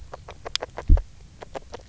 {"label": "biophony, grazing", "recorder": "SoundTrap 300"}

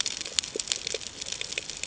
{"label": "ambient", "recorder": "HydroMoth"}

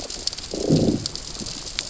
{"label": "biophony, growl", "recorder": "SoundTrap 600 or HydroMoth"}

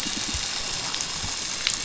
{"label": "biophony", "recorder": "SoundTrap 500"}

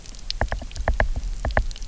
{"label": "biophony, knock", "recorder": "SoundTrap 300"}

